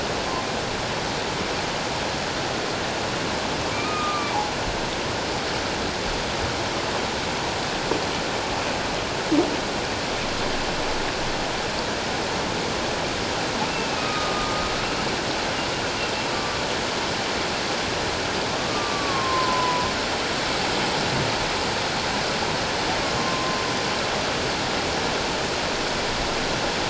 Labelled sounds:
3.7	4.3	humpback whale, 1.1 to 2.5 kHz
13.7	14.7	humpback whale, 1.1 to 2.7 kHz
16.3	16.6	humpback whale, 1.1 to 1.2 kHz
18.7	19.9	humpback whale, 0.94 to 1.2 kHz
23.2	23.6	humpback whale, 0.97 to 1.1 kHz

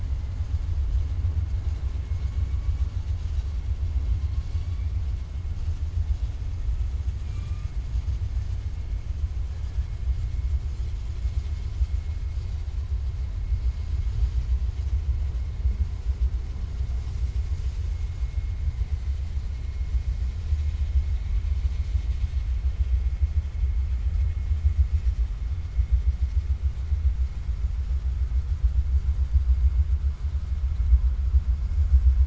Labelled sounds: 7.2	7.7	killer whale, 1.1 to 4.1 kHz

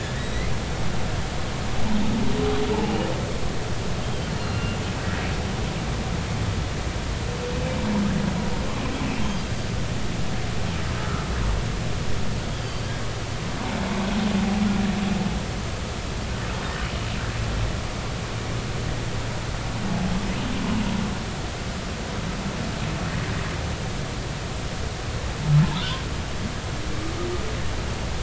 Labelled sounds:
0.0	0.5	humpback whale, 1.6 to 4.1 kHz
2.8	3.1	humpback whale, 2.6 to 2.9 kHz
4.4	4.8	humpback whale, 2.7 to 2.8 kHz
11.0	11.2	humpback whale, 1.2 to 1.5 kHz
12.6	12.9	humpback whale, 4.4 to 4.8 kHz
25.7	26.0	humpback whale, 3.3 to 3.7 kHz

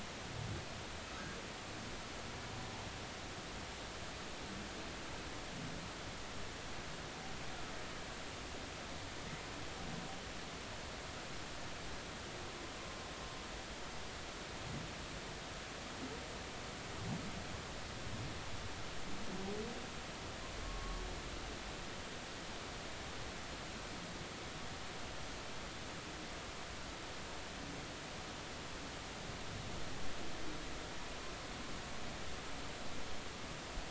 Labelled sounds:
1.0	1.3	humpback whale, 6.4 to 6.6 kHz
20.6	21.0	humpback whale, 1.1 to 1.2 kHz

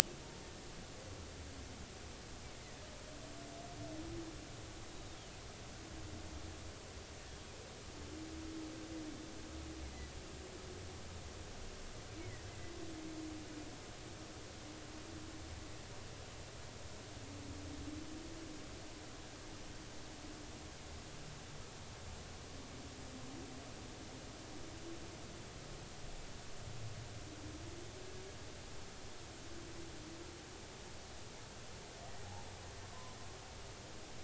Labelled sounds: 4.9	5.2	humpback whale, 3.6 to 3.9 kHz
12.1	12.5	humpback whale, 1.8 to 2.5 kHz

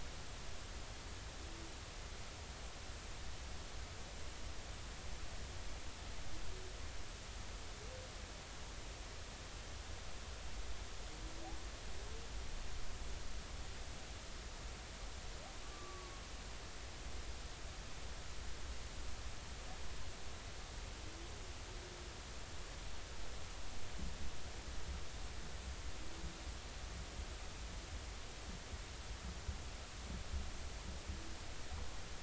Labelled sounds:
15.6	16.2	humpback whale, 1.1 to 1.2 kHz

